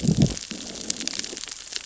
{"label": "biophony, growl", "recorder": "SoundTrap 600 or HydroMoth"}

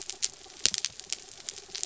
{"label": "anthrophony, mechanical", "recorder": "SoundTrap 300"}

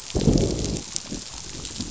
{"label": "biophony, growl", "recorder": "SoundTrap 500"}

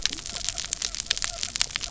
{"label": "biophony", "recorder": "SoundTrap 300"}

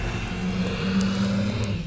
{"label": "biophony", "recorder": "SoundTrap 300"}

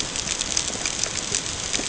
{"label": "ambient", "recorder": "HydroMoth"}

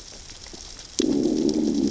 {"label": "biophony, growl", "recorder": "SoundTrap 600 or HydroMoth"}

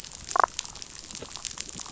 {"label": "biophony, damselfish", "recorder": "SoundTrap 500"}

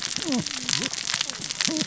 {"label": "biophony, cascading saw", "recorder": "SoundTrap 600 or HydroMoth"}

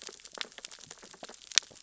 {"label": "biophony, sea urchins (Echinidae)", "recorder": "SoundTrap 600 or HydroMoth"}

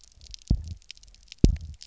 {"label": "biophony, double pulse", "recorder": "SoundTrap 300"}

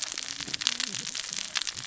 {"label": "biophony, cascading saw", "recorder": "SoundTrap 600 or HydroMoth"}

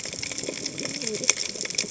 {"label": "biophony, cascading saw", "recorder": "HydroMoth"}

